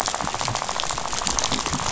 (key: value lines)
label: biophony, rattle
recorder: SoundTrap 500